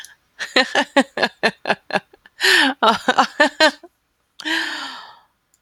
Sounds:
Laughter